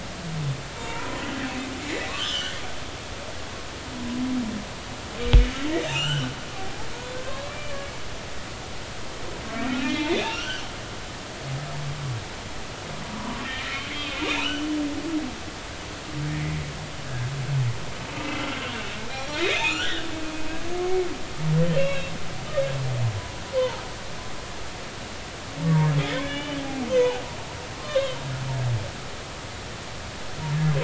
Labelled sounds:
0.7	2.5	humpback whale, 0.86 to 7.3 kHz
3.9	4.2	humpback whale, 0.96 to 1.0 kHz
5.9	6.9	humpback whale, 0.80 to 7.7 kHz
7.2	7.8	humpback whale, 0.99 to 2.4 kHz
9.6	10.6	humpback whale, 1.2 to 3.8 kHz
13.0	13.8	humpback whale, 0.93 to 2.5 kHz
14.2	14.7	humpback whale, 2.2 to 3.1 kHz
17.0	17.3	humpback whale, 1.5 to 1.7 kHz
19.1	20.0	humpback whale, 1.2 to 5.8 kHz
21.8	22.1	humpback whale, 2.5 to 3.9 kHz
23.2	23.8	humpback whale, 0.80 to 1.1 kHz
26.1	26.6	humpback whale, 1.7 to 3.6 kHz
26.9	28.2	humpback whale, 1.0 to 3.9 kHz

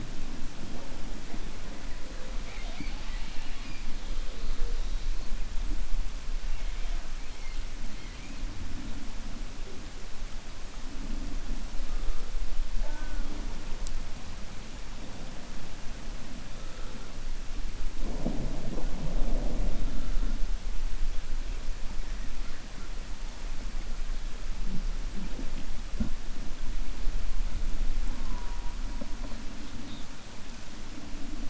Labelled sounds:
2.4	3.8	killer whale, 0.30 to 5.0 kHz

